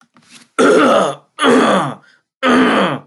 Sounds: Throat clearing